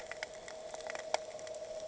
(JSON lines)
{"label": "anthrophony, boat engine", "recorder": "HydroMoth"}